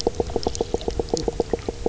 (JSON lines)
{"label": "biophony, knock croak", "recorder": "SoundTrap 300"}